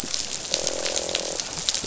{"label": "biophony, croak", "recorder": "SoundTrap 500"}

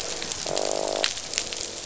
{"label": "biophony, croak", "recorder": "SoundTrap 500"}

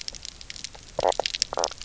{"label": "biophony, knock croak", "recorder": "SoundTrap 300"}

